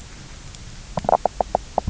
{"label": "biophony, knock croak", "recorder": "SoundTrap 300"}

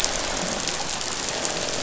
{"label": "biophony, croak", "recorder": "SoundTrap 500"}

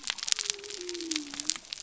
{"label": "biophony", "recorder": "SoundTrap 300"}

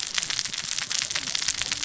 {"label": "biophony, cascading saw", "recorder": "SoundTrap 600 or HydroMoth"}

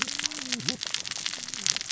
{"label": "biophony, cascading saw", "recorder": "SoundTrap 600 or HydroMoth"}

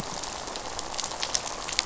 {"label": "biophony, rattle", "recorder": "SoundTrap 500"}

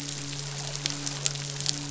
{"label": "biophony, midshipman", "recorder": "SoundTrap 500"}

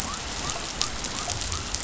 {"label": "biophony", "recorder": "SoundTrap 500"}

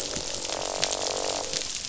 {"label": "biophony, croak", "recorder": "SoundTrap 500"}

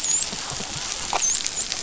{"label": "biophony, dolphin", "recorder": "SoundTrap 500"}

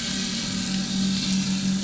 {"label": "anthrophony, boat engine", "recorder": "SoundTrap 500"}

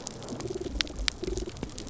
{"label": "biophony, damselfish", "recorder": "SoundTrap 300"}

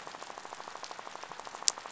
{"label": "biophony, rattle", "recorder": "SoundTrap 500"}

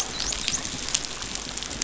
{"label": "biophony, dolphin", "recorder": "SoundTrap 500"}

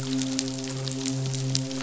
{"label": "biophony, midshipman", "recorder": "SoundTrap 500"}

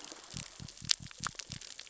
{"label": "biophony", "recorder": "SoundTrap 600 or HydroMoth"}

